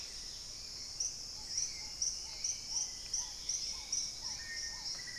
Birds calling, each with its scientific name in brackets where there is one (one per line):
Black-tailed Trogon (Trogon melanurus)
unidentified bird
Black-faced Antthrush (Formicarius analis)
Dusky-capped Greenlet (Pachysylvia hypoxantha)
Hauxwell's Thrush (Turdus hauxwelli)
Dusky-throated Antshrike (Thamnomanes ardesiacus)